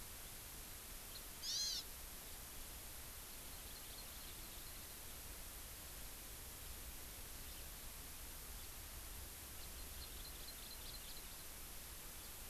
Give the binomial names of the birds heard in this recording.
Haemorhous mexicanus, Chlorodrepanis virens